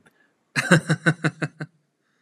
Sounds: Laughter